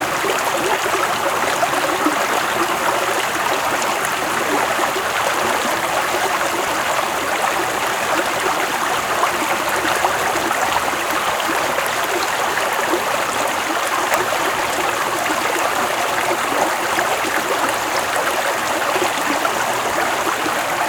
What fluid can be heard gurgling away?
water